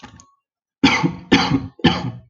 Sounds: Cough